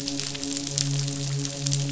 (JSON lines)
{"label": "biophony, midshipman", "recorder": "SoundTrap 500"}